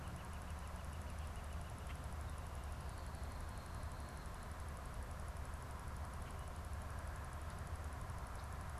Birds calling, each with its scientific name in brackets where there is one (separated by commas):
Northern Flicker (Colaptes auratus)